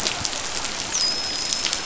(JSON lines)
{"label": "biophony, dolphin", "recorder": "SoundTrap 500"}